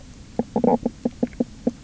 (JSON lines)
{"label": "biophony, knock croak", "recorder": "SoundTrap 300"}